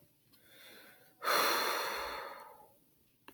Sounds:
Sigh